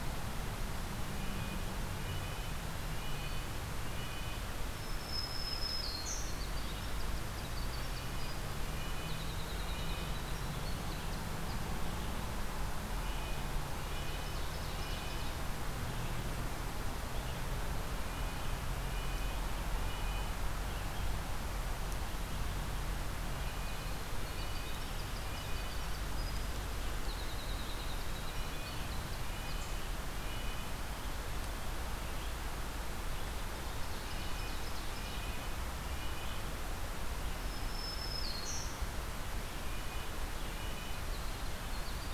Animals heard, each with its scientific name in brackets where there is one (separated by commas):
Black-throated Green Warbler (Setophaga virens), Winter Wren (Troglodytes hiemalis), Ovenbird (Seiurus aurocapilla), Red-breasted Nuthatch (Sitta canadensis)